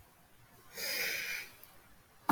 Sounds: Sniff